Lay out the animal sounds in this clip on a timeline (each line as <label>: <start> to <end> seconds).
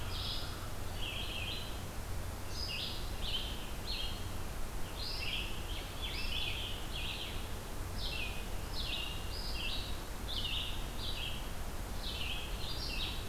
Red-eyed Vireo (Vireo olivaceus): 0.0 to 13.3 seconds
Scarlet Tanager (Piranga olivacea): 4.7 to 7.2 seconds